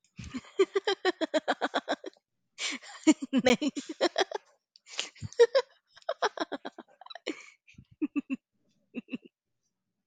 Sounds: Laughter